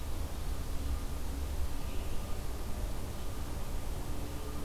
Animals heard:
forest ambience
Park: Marsh-Billings-Rockefeller National Historical Park